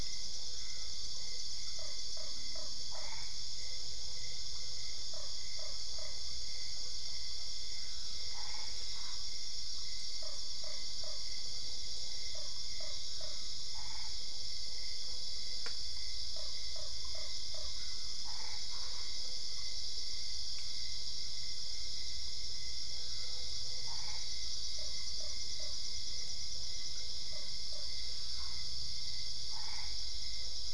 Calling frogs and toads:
Boana lundii, Boana albopunctata
Cerrado, Brazil, 11pm

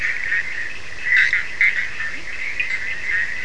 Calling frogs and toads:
Boana bischoffi, Sphaenorhynchus surdus, Boana leptolineata, Leptodactylus latrans
Atlantic Forest, Brazil, ~4am

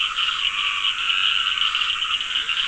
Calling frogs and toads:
Dendropsophus nahdereri, Scinax perereca
Atlantic Forest, ~7pm

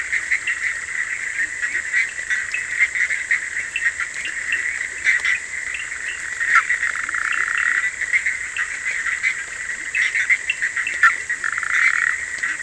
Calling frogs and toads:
Boana bischoffi, Leptodactylus latrans
Atlantic Forest, Brazil, 11:30pm

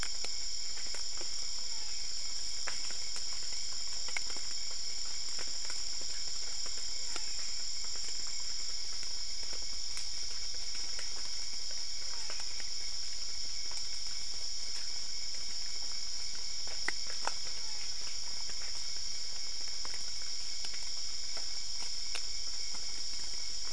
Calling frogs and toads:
Physalaemus marmoratus
Brazil, ~2am

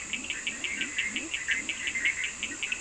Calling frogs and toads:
Boana bischoffi, Leptodactylus latrans, Sphaenorhynchus surdus
Brazil, 3:00am

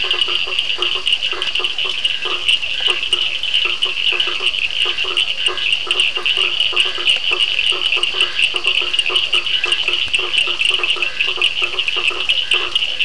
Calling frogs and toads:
Boana faber, Physalaemus cuvieri, Scinax perereca, Sphaenorhynchus surdus
Atlantic Forest, Brazil, ~8pm

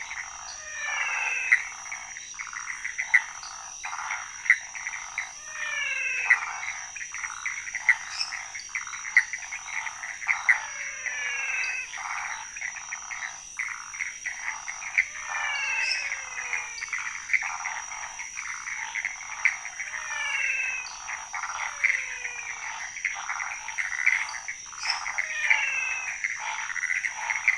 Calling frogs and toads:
Leptodactylus podicipinus, Phyllomedusa sauvagii, Pithecopus azureus, Physalaemus albonotatus, Dendropsophus minutus
Cerrado, ~2am

